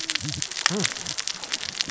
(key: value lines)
label: biophony, cascading saw
recorder: SoundTrap 600 or HydroMoth